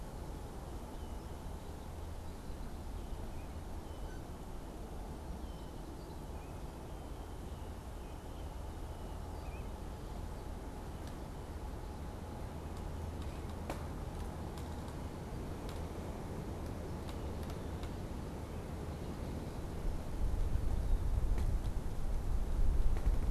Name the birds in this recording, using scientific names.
Agelaius phoeniceus, Baeolophus bicolor